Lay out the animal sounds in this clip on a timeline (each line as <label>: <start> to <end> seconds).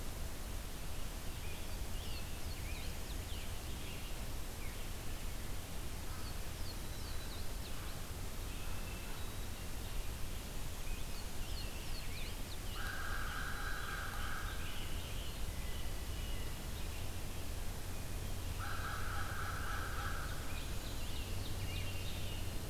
Scarlet Tanager (Piranga olivacea): 1.3 to 4.3 seconds
Louisiana Waterthrush (Parkesia motacilla): 1.6 to 3.6 seconds
Louisiana Waterthrush (Parkesia motacilla): 5.9 to 8.1 seconds
Black-throated Green Warbler (Setophaga virens): 6.7 to 7.4 seconds
Hermit Thrush (Catharus guttatus): 8.4 to 9.8 seconds
Scarlet Tanager (Piranga olivacea): 10.7 to 13.4 seconds
Louisiana Waterthrush (Parkesia motacilla): 10.8 to 12.9 seconds
American Crow (Corvus brachyrhynchos): 12.7 to 15.3 seconds
Great Crested Flycatcher (Myiarchus crinitus): 13.7 to 16.0 seconds
Hermit Thrush (Catharus guttatus): 15.5 to 16.9 seconds
American Crow (Corvus brachyrhynchos): 18.6 to 20.5 seconds
Ovenbird (Seiurus aurocapilla): 19.2 to 22.3 seconds
Scarlet Tanager (Piranga olivacea): 19.5 to 22.7 seconds